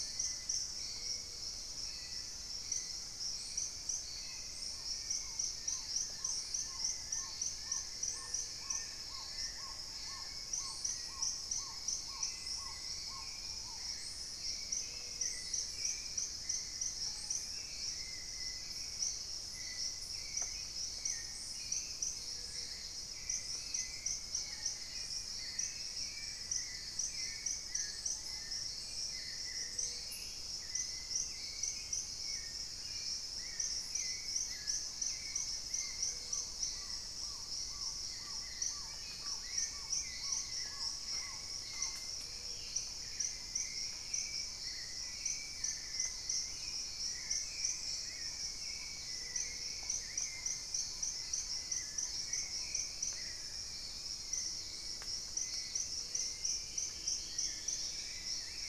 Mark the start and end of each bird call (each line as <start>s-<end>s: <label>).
0.0s-0.7s: Plain-winged Antshrike (Thamnophilus schistaceus)
0.0s-1.4s: Screaming Piha (Lipaugus vociferans)
0.0s-58.7s: Hauxwell's Thrush (Turdus hauxwelli)
0.7s-1.6s: Gray-fronted Dove (Leptotila rufaxilla)
3.7s-14.0s: Black-tailed Trogon (Trogon melanurus)
4.9s-10.6s: Long-billed Woodcreeper (Nasica longirostris)
5.7s-6.7s: unidentified bird
7.7s-8.9s: Gray-fronted Dove (Leptotila rufaxilla)
14.6s-15.6s: Gray-fronted Dove (Leptotila rufaxilla)
15.4s-17.7s: Plain-winged Antshrike (Thamnophilus schistaceus)
17.0s-17.3s: unidentified bird
22.0s-22.9s: Gray-fronted Dove (Leptotila rufaxilla)
24.3s-28.6s: Screaming Piha (Lipaugus vociferans)
25.3s-28.9s: Long-billed Woodcreeper (Nasica longirostris)
29.4s-30.3s: Gray-fronted Dove (Leptotila rufaxilla)
34.4s-36.8s: Plain-winged Antshrike (Thamnophilus schistaceus)
34.5s-52.9s: Black-tailed Trogon (Trogon melanurus)
35.8s-36.6s: Gray-fronted Dove (Leptotila rufaxilla)
42.1s-42.9s: Gray-fronted Dove (Leptotila rufaxilla)
42.3s-43.0s: unidentified bird
46.2s-49.9s: unidentified bird
49.0s-49.8s: Gray-fronted Dove (Leptotila rufaxilla)
49.8s-51.7s: Plain-winged Antshrike (Thamnophilus schistaceus)
52.4s-53.7s: Plumbeous Pigeon (Patagioenas plumbea)
55.0s-58.6s: Dusky-throated Antshrike (Thamnomanes ardesiacus)
55.8s-56.6s: Gray-fronted Dove (Leptotila rufaxilla)